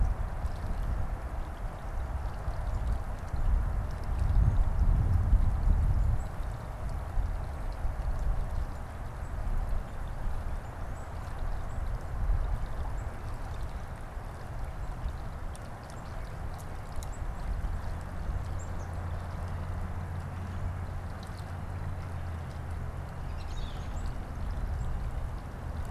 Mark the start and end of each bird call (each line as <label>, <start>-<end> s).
Black-capped Chickadee (Poecile atricapillus), 10.5-13.3 s
Black-capped Chickadee (Poecile atricapillus), 17.0-19.2 s
American Robin (Turdus migratorius), 22.9-24.1 s